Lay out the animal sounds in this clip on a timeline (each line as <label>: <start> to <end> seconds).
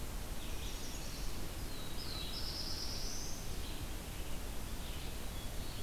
Red-eyed Vireo (Vireo olivaceus): 0.0 to 5.2 seconds
Chestnut-sided Warbler (Setophaga pensylvanica): 0.2 to 1.5 seconds
Black-throated Blue Warbler (Setophaga caerulescens): 1.5 to 3.5 seconds
Black-throated Blue Warbler (Setophaga caerulescens): 5.1 to 5.8 seconds